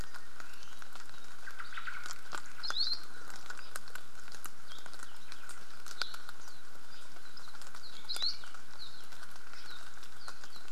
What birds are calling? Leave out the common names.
Myadestes obscurus, Loxops coccineus, Himatione sanguinea